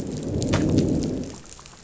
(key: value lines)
label: biophony, growl
recorder: SoundTrap 500